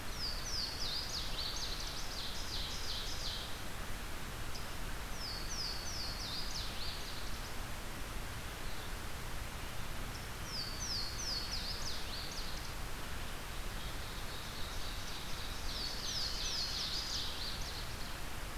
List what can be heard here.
Louisiana Waterthrush, Ovenbird